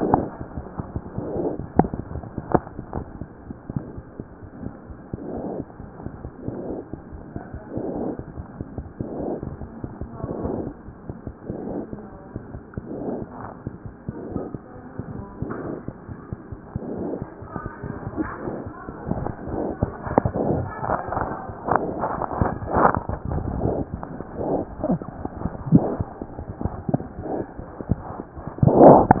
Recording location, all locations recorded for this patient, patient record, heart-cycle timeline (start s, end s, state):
mitral valve (MV)
aortic valve (AV)+mitral valve (MV)
#Age: Infant
#Sex: Male
#Height: 60.0 cm
#Weight: 8.3 kg
#Pregnancy status: False
#Murmur: Absent
#Murmur locations: nan
#Most audible location: nan
#Systolic murmur timing: nan
#Systolic murmur shape: nan
#Systolic murmur grading: nan
#Systolic murmur pitch: nan
#Systolic murmur quality: nan
#Diastolic murmur timing: nan
#Diastolic murmur shape: nan
#Diastolic murmur grading: nan
#Diastolic murmur pitch: nan
#Diastolic murmur quality: nan
#Outcome: Normal
#Campaign: 2015 screening campaign
0.00	3.95	unannotated
3.95	4.04	S1
4.04	4.15	systole
4.15	4.25	S2
4.25	4.40	diastole
4.40	4.49	S1
4.49	4.63	systole
4.63	4.70	S2
4.70	4.88	diastole
4.88	4.94	S1
4.94	5.10	systole
5.10	5.18	S2
5.18	5.81	unannotated
5.81	5.88	S1
5.88	6.03	systole
6.03	6.10	S2
6.10	6.22	diastole
6.22	6.31	S1
6.31	6.46	systole
6.46	6.51	S2
6.51	6.66	diastole
6.66	6.73	S1
6.73	6.90	systole
6.90	6.96	S2
6.96	7.10	diastole
7.10	7.19	S1
7.19	7.32	systole
7.32	7.41	S2
7.41	7.51	S2
7.51	7.60	S1
7.60	7.74	systole
7.74	7.80	S2
7.80	8.35	unannotated
8.35	8.43	S1
8.43	8.58	systole
8.58	8.64	S2
8.64	8.78	diastole
8.78	8.87	S1
8.87	8.98	systole
8.98	9.04	S2
9.04	29.20	unannotated